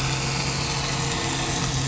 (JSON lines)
{"label": "anthrophony, boat engine", "recorder": "SoundTrap 500"}